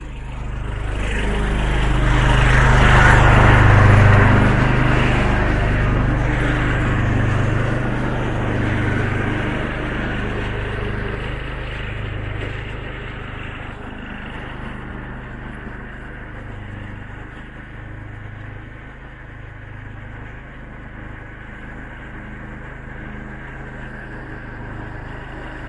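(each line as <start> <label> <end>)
0.0 A lawn mower buzzes steadily, growing louder. 2.1
1.6 A lawn mower is loudly buzzing nearby. 5.1
4.4 A lawn mower buzzes steadily and gradually grows quieter as it moves away. 25.7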